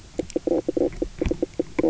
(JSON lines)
{"label": "biophony, knock croak", "recorder": "SoundTrap 300"}